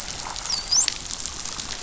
{"label": "biophony, dolphin", "recorder": "SoundTrap 500"}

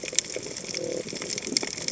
{"label": "biophony", "recorder": "HydroMoth"}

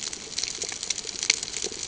{"label": "ambient", "recorder": "HydroMoth"}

